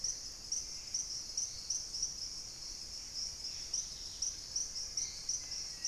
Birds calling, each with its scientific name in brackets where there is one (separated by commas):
Wing-barred Piprites (Piprites chloris), Hauxwell's Thrush (Turdus hauxwelli), Dusky-capped Greenlet (Pachysylvia hypoxantha), Dusky-throated Antshrike (Thamnomanes ardesiacus)